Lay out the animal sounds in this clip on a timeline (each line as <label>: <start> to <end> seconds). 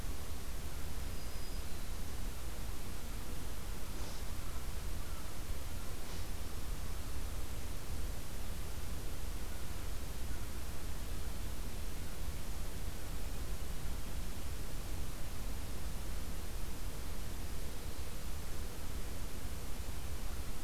Black-throated Green Warbler (Setophaga virens): 0.8 to 2.1 seconds